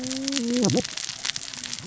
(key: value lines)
label: biophony, cascading saw
recorder: SoundTrap 600 or HydroMoth